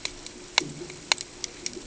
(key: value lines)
label: ambient
recorder: HydroMoth